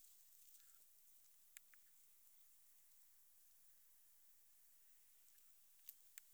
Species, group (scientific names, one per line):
Metrioptera saussuriana
Orthoptera